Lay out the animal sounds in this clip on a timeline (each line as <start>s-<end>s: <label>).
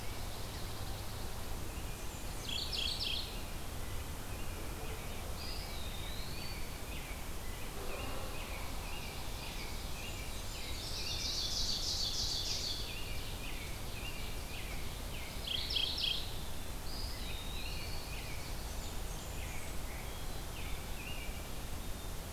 0.0s-1.5s: Pine Warbler (Setophaga pinus)
1.6s-3.1s: Blackburnian Warbler (Setophaga fusca)
2.2s-3.4s: Mourning Warbler (Geothlypis philadelphia)
4.1s-11.3s: American Robin (Turdus migratorius)
5.2s-6.8s: Eastern Wood-Pewee (Contopus virens)
8.6s-9.9s: Chestnut-sided Warbler (Setophaga pensylvanica)
9.8s-10.9s: Blackburnian Warbler (Setophaga fusca)
10.5s-14.8s: Ovenbird (Seiurus aurocapilla)
12.1s-15.9s: American Robin (Turdus migratorius)
15.3s-16.4s: Mourning Warbler (Geothlypis philadelphia)
16.7s-18.1s: Eastern Wood-Pewee (Contopus virens)
16.9s-18.4s: American Robin (Turdus migratorius)
18.6s-19.8s: Blackburnian Warbler (Setophaga fusca)
19.2s-21.3s: American Robin (Turdus migratorius)